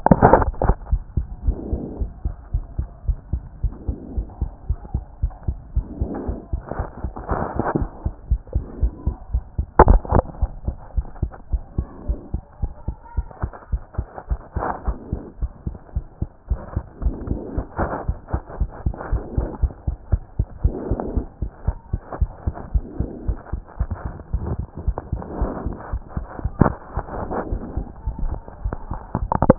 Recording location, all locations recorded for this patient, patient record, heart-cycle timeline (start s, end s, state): pulmonary valve (PV)
aortic valve (AV)+pulmonary valve (PV)+tricuspid valve (TV)+mitral valve (MV)
#Age: Child
#Sex: Female
#Height: 149.0 cm
#Weight: 33.7 kg
#Pregnancy status: False
#Murmur: Absent
#Murmur locations: nan
#Most audible location: nan
#Systolic murmur timing: nan
#Systolic murmur shape: nan
#Systolic murmur grading: nan
#Systolic murmur pitch: nan
#Systolic murmur quality: nan
#Diastolic murmur timing: nan
#Diastolic murmur shape: nan
#Diastolic murmur grading: nan
#Diastolic murmur pitch: nan
#Diastolic murmur quality: nan
#Outcome: Normal
#Campaign: 2014 screening campaign
0.00	0.79	unannotated
0.79	0.90	diastole
0.90	1.02	S1
1.02	1.16	systole
1.16	1.26	S2
1.26	1.46	diastole
1.46	1.56	S1
1.56	1.70	systole
1.70	1.80	S2
1.80	2.00	diastole
2.00	2.10	S1
2.10	2.24	systole
2.24	2.34	S2
2.34	2.54	diastole
2.54	2.64	S1
2.64	2.78	systole
2.78	2.88	S2
2.88	3.06	diastole
3.06	3.18	S1
3.18	3.32	systole
3.32	3.42	S2
3.42	3.62	diastole
3.62	3.74	S1
3.74	3.88	systole
3.88	3.98	S2
3.98	4.16	diastole
4.16	4.26	S1
4.26	4.40	systole
4.40	4.50	S2
4.50	4.70	diastole
4.70	4.78	S1
4.78	4.92	systole
4.92	5.04	S2
5.04	5.24	diastole
5.24	5.32	S1
5.32	5.46	systole
5.46	5.58	S2
5.58	5.76	diastole
5.76	5.86	S1
5.86	6.00	systole
6.00	6.10	S2
6.10	6.28	diastole
6.28	6.38	S1
6.38	6.52	systole
6.52	6.62	S2
6.62	6.79	diastole
6.79	29.58	unannotated